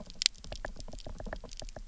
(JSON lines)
{"label": "biophony, knock", "recorder": "SoundTrap 300"}